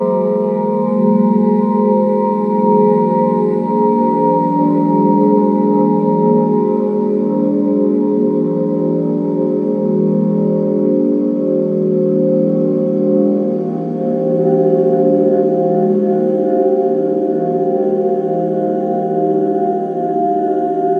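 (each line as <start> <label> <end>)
0.0 A loud, recurring echoing sound from a musical instrument. 21.0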